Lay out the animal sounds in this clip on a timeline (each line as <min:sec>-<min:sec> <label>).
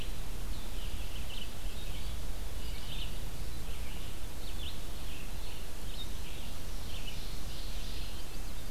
0:00.0-0:08.7 Red-eyed Vireo (Vireo olivaceus)
0:06.6-0:08.2 Ovenbird (Seiurus aurocapilla)
0:07.7-0:08.6 Chestnut-sided Warbler (Setophaga pensylvanica)